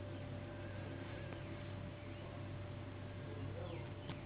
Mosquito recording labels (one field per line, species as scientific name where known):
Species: Anopheles gambiae s.s.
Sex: female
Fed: unfed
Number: one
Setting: insect culture